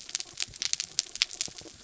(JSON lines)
{"label": "anthrophony, mechanical", "recorder": "SoundTrap 300"}